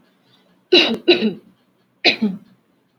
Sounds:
Cough